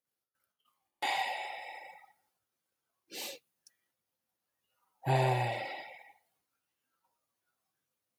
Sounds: Sigh